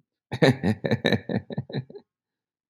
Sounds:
Laughter